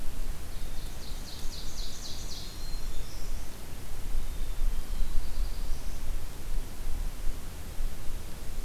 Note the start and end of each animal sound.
0.2s-1.4s: Black-capped Chickadee (Poecile atricapillus)
0.4s-2.6s: Ovenbird (Seiurus aurocapilla)
1.9s-3.5s: Black-and-white Warbler (Mniotilta varia)
2.3s-3.7s: Black-throated Green Warbler (Setophaga virens)
4.1s-5.3s: Black-capped Chickadee (Poecile atricapillus)
4.5s-6.1s: Black-throated Blue Warbler (Setophaga caerulescens)

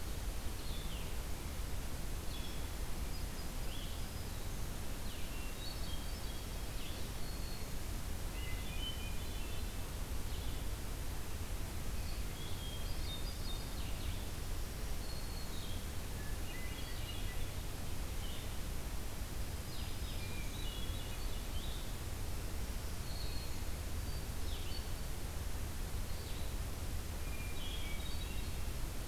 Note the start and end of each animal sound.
0.0s-29.1s: Blue-headed Vireo (Vireo solitarius)
2.2s-3.7s: Hermit Thrush (Catharus guttatus)
3.8s-4.7s: Black-throated Green Warbler (Setophaga virens)
5.2s-6.8s: Hermit Thrush (Catharus guttatus)
6.8s-8.0s: Black-throated Green Warbler (Setophaga virens)
8.3s-9.9s: Hermit Thrush (Catharus guttatus)
12.3s-13.7s: Hermit Thrush (Catharus guttatus)
14.4s-15.8s: Black-throated Green Warbler (Setophaga virens)
16.1s-17.6s: Hermit Thrush (Catharus guttatus)
19.6s-20.7s: Black-throated Green Warbler (Setophaga virens)
20.1s-21.5s: Hermit Thrush (Catharus guttatus)
22.4s-23.8s: Black-throated Green Warbler (Setophaga virens)
23.8s-25.2s: Hermit Thrush (Catharus guttatus)
27.2s-28.7s: Hermit Thrush (Catharus guttatus)

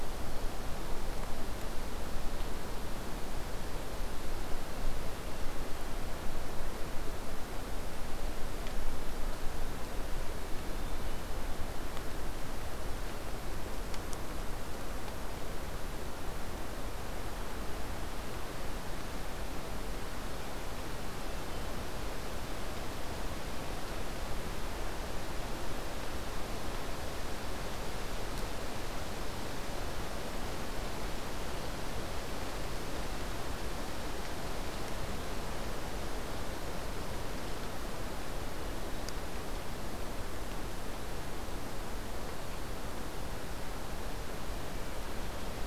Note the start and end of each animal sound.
5.0s-6.1s: Hermit Thrush (Catharus guttatus)
10.4s-11.5s: Hermit Thrush (Catharus guttatus)
21.2s-21.8s: Hermit Thrush (Catharus guttatus)
44.7s-45.7s: Hermit Thrush (Catharus guttatus)

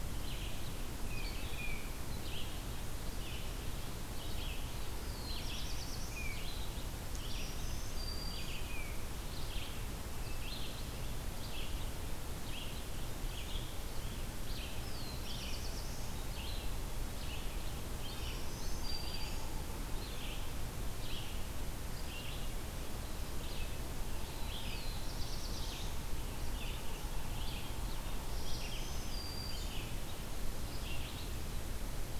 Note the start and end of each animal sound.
0.0s-14.8s: Red-eyed Vireo (Vireo olivaceus)
1.0s-1.9s: Tufted Titmouse (Baeolophus bicolor)
4.9s-6.4s: Black-throated Blue Warbler (Setophaga caerulescens)
6.0s-6.5s: Tufted Titmouse (Baeolophus bicolor)
7.1s-8.7s: Black-throated Green Warbler (Setophaga virens)
8.6s-9.1s: Tufted Titmouse (Baeolophus bicolor)
14.8s-16.2s: Black-throated Blue Warbler (Setophaga caerulescens)
15.2s-32.2s: Red-eyed Vireo (Vireo olivaceus)
18.0s-19.6s: Black-throated Green Warbler (Setophaga virens)
23.8s-26.0s: Black-throated Blue Warbler (Setophaga caerulescens)
28.0s-29.9s: Black-throated Green Warbler (Setophaga virens)

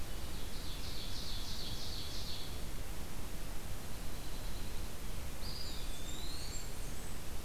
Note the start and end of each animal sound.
0.0s-3.0s: Ovenbird (Seiurus aurocapilla)
3.4s-4.9s: Dark-eyed Junco (Junco hyemalis)
5.1s-7.1s: Eastern Wood-Pewee (Contopus virens)
5.3s-7.4s: Blackburnian Warbler (Setophaga fusca)

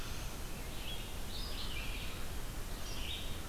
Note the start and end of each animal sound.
0.0s-0.6s: Black-throated Blue Warbler (Setophaga caerulescens)
0.0s-3.5s: Red-eyed Vireo (Vireo olivaceus)

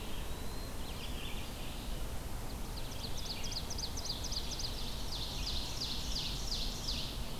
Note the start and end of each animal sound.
0.0s-0.9s: Eastern Wood-Pewee (Contopus virens)
0.0s-7.4s: Red-eyed Vireo (Vireo olivaceus)
2.5s-7.2s: Ovenbird (Seiurus aurocapilla)

